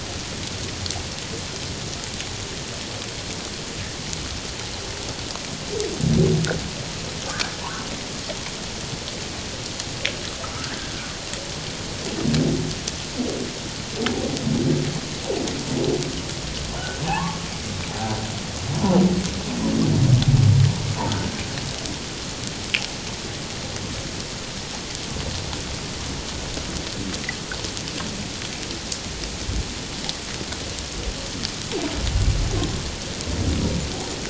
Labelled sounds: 7.3	7.9	humpback whale, 0.88 to 1.8 kHz
10.5	10.9	humpback whale, 1.2 to 1.8 kHz
16.8	17.4	humpback whale, 0.78 to 1.6 kHz
21.1	21.3	humpback whale, 1.2 to 1.6 kHz

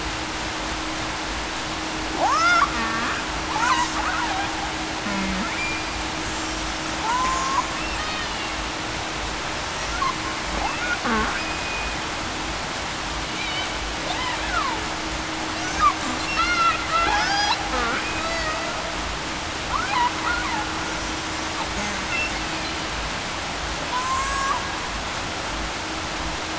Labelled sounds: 2.2	3.1	killer whale, Bigg's (transient), 0.56 to 1.5 kHz
5.0	5.5	killer whale, Bigg's (transient), 0.19 to 0.28 kHz
7.0	7.6	killer whale, Bigg's (transient), 0.82 to 1.1 kHz
8.0	8.4	killer whale, Bigg's (transient), 2.9 to 3.1 kHz
11.4	11.9	killer whale, Bigg's (transient), 2.4 to 8.0 kHz
16.4	16.8	killer whale, Bigg's (transient), 1.2 to 1.5 kHz
18.3	18.7	killer whale, Bigg's (transient), 1.9 to 2.1 kHz
23.9	24.6	killer whale, Bigg's (transient), 0.94 to 1.7 kHz

